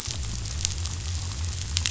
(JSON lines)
{"label": "biophony", "recorder": "SoundTrap 500"}